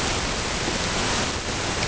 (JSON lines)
{"label": "ambient", "recorder": "HydroMoth"}